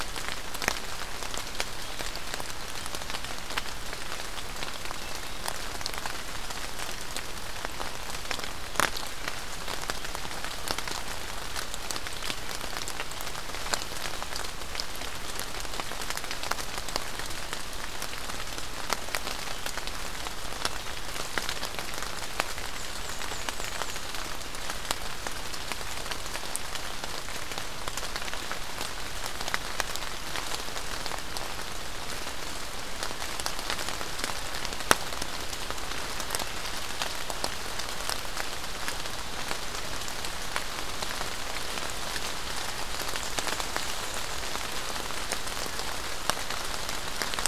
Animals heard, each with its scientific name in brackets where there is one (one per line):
Black-and-white Warbler (Mniotilta varia)